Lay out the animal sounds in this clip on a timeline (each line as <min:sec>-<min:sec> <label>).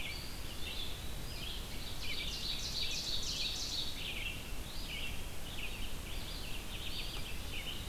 0:00.0-0:07.9 Red-eyed Vireo (Vireo olivaceus)
0:00.1-0:01.3 Eastern Wood-Pewee (Contopus virens)
0:01.4-0:03.8 Ovenbird (Seiurus aurocapilla)
0:06.9-0:07.9 Eastern Wood-Pewee (Contopus virens)